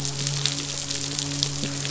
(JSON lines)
{"label": "biophony, midshipman", "recorder": "SoundTrap 500"}